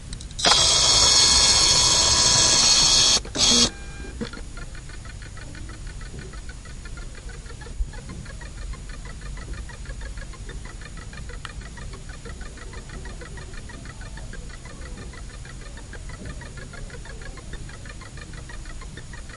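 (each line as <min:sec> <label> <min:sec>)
0:00.4 A machine making a loud noise. 0:03.7
0:04.1 A machine is beeping repeatedly. 0:19.4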